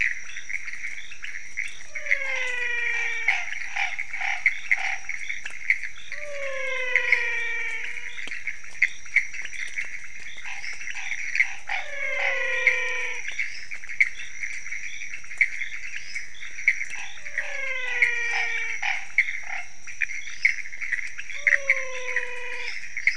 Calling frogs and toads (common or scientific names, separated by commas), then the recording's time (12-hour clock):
pointedbelly frog, Pithecopus azureus, menwig frog, Chaco tree frog, lesser tree frog
3:45am